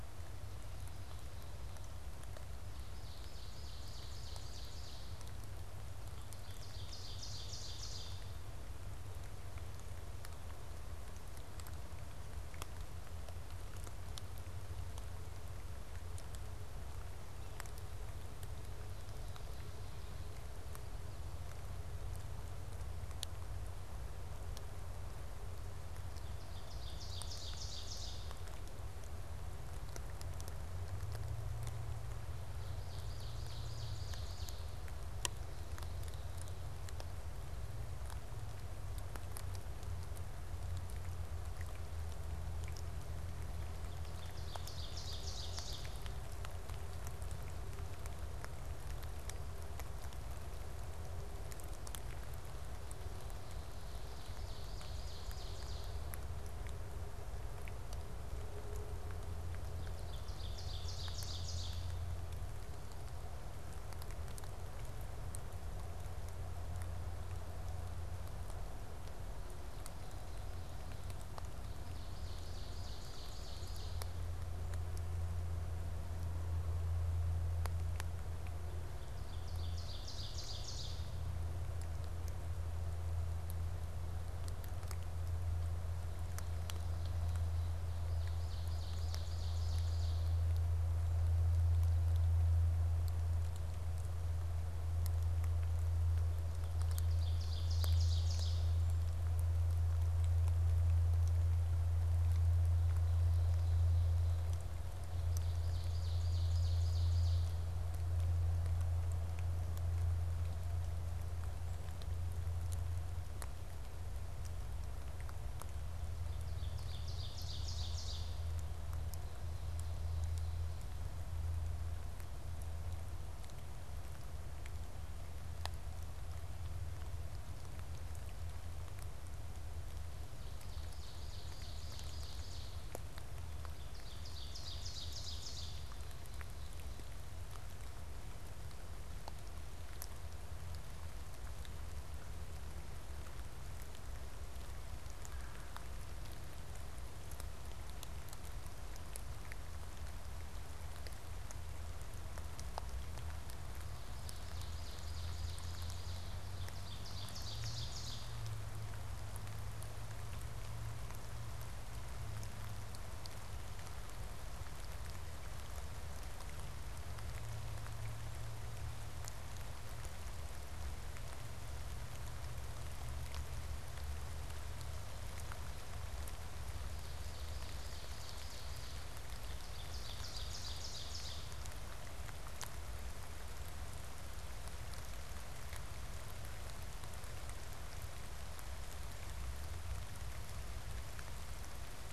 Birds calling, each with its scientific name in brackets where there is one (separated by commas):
Red-bellied Woodpecker (Melanerpes carolinus), Ovenbird (Seiurus aurocapilla)